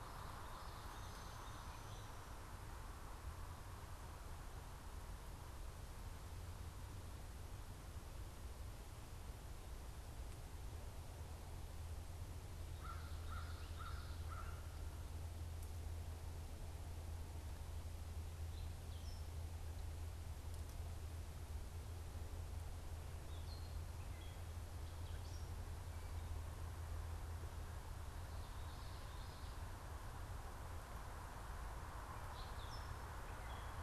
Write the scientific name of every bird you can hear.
Geothlypis trichas, Corvus brachyrhynchos, Dumetella carolinensis